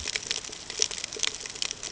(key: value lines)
label: ambient
recorder: HydroMoth